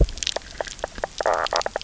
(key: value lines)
label: biophony, knock croak
recorder: SoundTrap 300